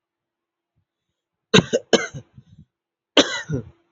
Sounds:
Cough